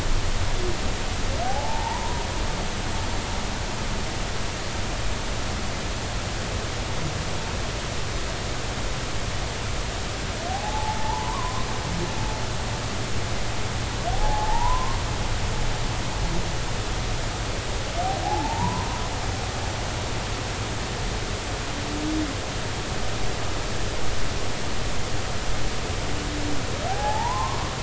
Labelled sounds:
1.4	2.2	humpback whale, 0.80 to 1.0 kHz
10.5	11.7	humpback whale, 0.80 to 1.2 kHz
14.1	15.0	humpback whale, 0.80 to 1.1 kHz
18.2	18.9	humpback whale, 0.80 to 1.1 kHz
26.9	27.8	humpback whale, 0.80 to 1.2 kHz

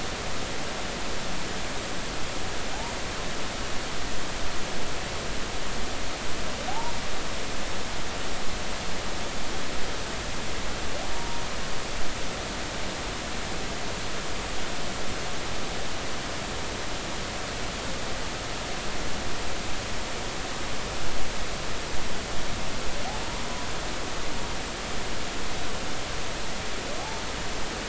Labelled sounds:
6.7	6.9	humpback whale, 0.80 to 1.0 kHz
11.1	11.4	humpback whale, 0.90 to 0.99 kHz

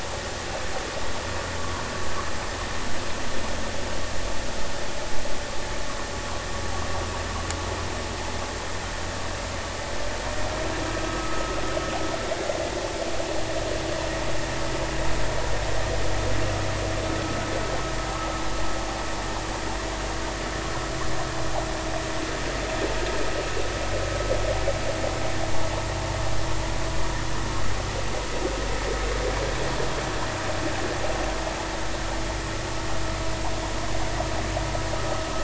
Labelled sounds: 11.0	11.4	vessel noise, 1.2 to 1.3 kHz

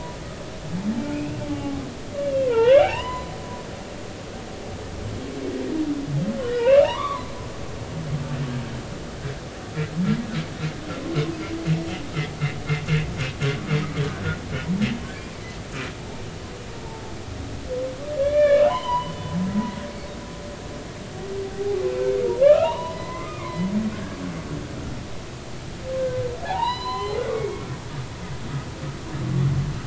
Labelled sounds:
1.1	1.8	humpback whale, 1.1 to 2.8 kHz
2.2	3.3	humpback whale, 0.80 to 4.1 kHz
6.4	7.3	humpback whale, 0.86 to 3.1 kHz
18.2	19.1	humpback whale, 0.80 to 3.6 kHz
19.5	19.8	humpback whale, 1.9 to 2.0 kHz
21.5	21.8	humpback whale, 0.80 to 0.86 kHz
22.4	23.7	humpback whale, 0.86 to 4.0 kHz
26.4	27.7	humpback whale, 0.80 to 8.0 kHz

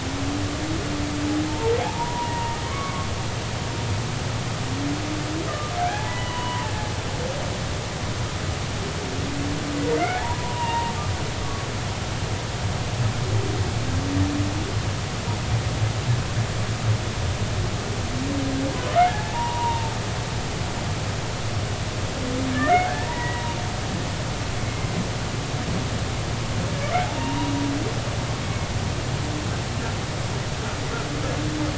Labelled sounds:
1.5	3.1	humpback whale, 0.80 to 1.2 kHz
5.5	6.7	humpback whale, 0.80 to 3.0 kHz
10.0	10.9	humpback whale, 0.80 to 2.9 kHz
19.1	19.9	humpback whale, 0.80 to 1.1 kHz
22.7	23.5	humpback whale, 0.83 to 2.0 kHz
27.2	27.5	humpback whale, 0.86 to 1.0 kHz
28.4	28.7	humpback whale, 2.1 to 2.2 kHz

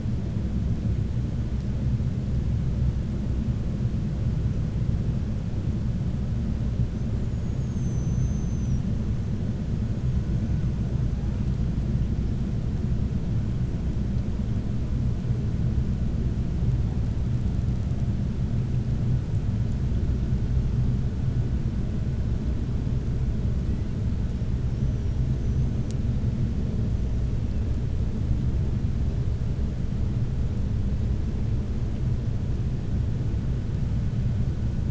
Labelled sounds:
7.1	8.9	killer whale, 5.7 to 7.9 kHz
25.3	25.8	killer whale, 5.9 to 6.5 kHz

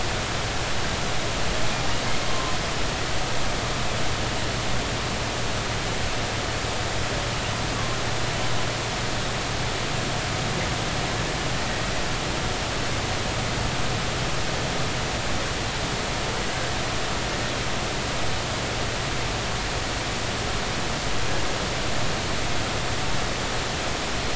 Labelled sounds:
2.3	2.6	humpback whale, 0.99 to 1.1 kHz

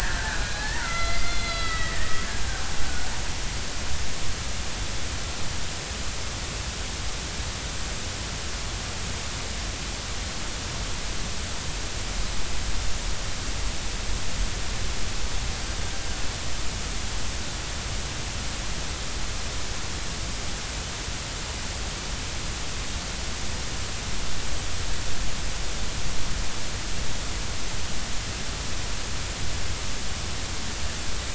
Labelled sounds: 1.2	1.9	killer whale, Bigg's (transient), call T12, 1.2 to 4.9 kHz

